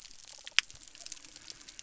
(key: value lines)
label: biophony
recorder: SoundTrap 300